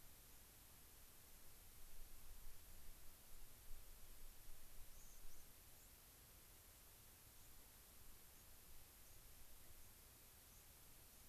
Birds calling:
White-crowned Sparrow (Zonotrichia leucophrys)

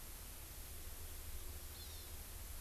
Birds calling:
Hawaii Amakihi (Chlorodrepanis virens)

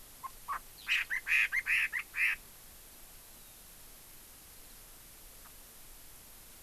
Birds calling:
Chinese Hwamei (Garrulax canorus)

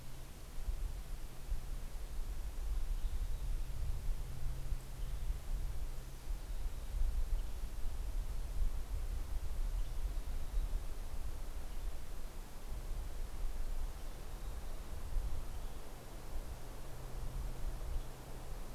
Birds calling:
Western Tanager (Piranga ludoviciana)

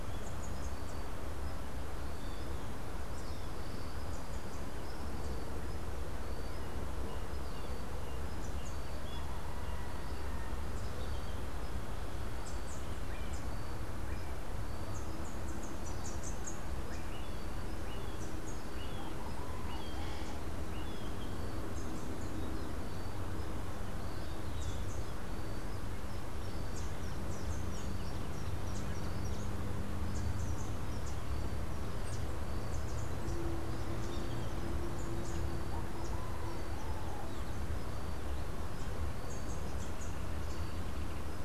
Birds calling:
Rufous-capped Warbler (Basileuterus rufifrons)
Melodious Blackbird (Dives dives)

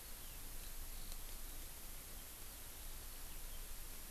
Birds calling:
Eurasian Skylark (Alauda arvensis)

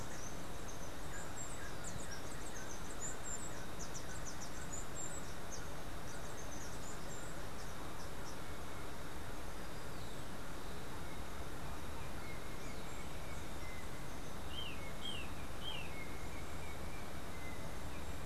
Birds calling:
Steely-vented Hummingbird (Saucerottia saucerottei)
unidentified bird
Golden-faced Tyrannulet (Zimmerius chrysops)

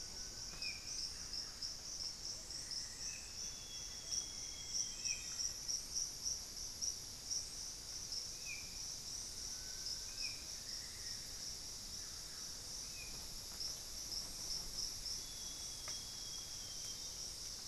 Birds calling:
Black-faced Antthrush (Formicarius analis)
Hauxwell's Thrush (Turdus hauxwelli)
Little Tinamou (Crypturellus soui)
Amazonian Grosbeak (Cyanoloxia rothschildii)
Solitary Black Cacique (Cacicus solitarius)
Buff-breasted Wren (Cantorchilus leucotis)
Amazonian Barred-Woodcreeper (Dendrocolaptes certhia)

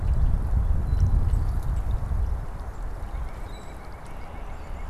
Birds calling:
White-breasted Nuthatch (Sitta carolinensis)
unidentified bird
Common Grackle (Quiscalus quiscula)

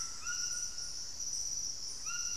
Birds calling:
White-throated Toucan (Ramphastos tucanus)

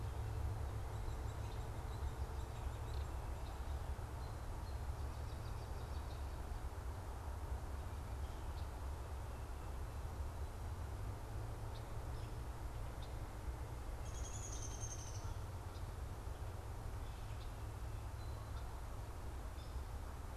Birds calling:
Red-winged Blackbird (Agelaius phoeniceus)
unidentified bird
Downy Woodpecker (Dryobates pubescens)

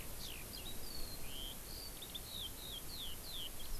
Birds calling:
Eurasian Skylark (Alauda arvensis)

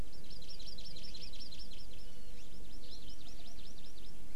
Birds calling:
Hawaii Amakihi (Chlorodrepanis virens)

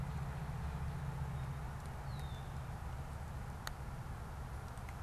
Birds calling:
Red-winged Blackbird (Agelaius phoeniceus)

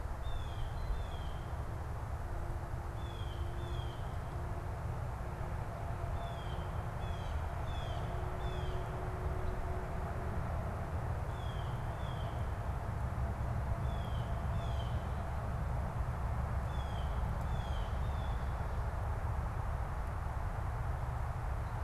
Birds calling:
Blue Jay (Cyanocitta cristata)

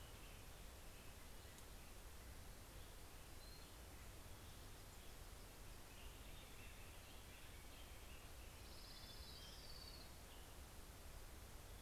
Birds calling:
Orange-crowned Warbler (Leiothlypis celata)

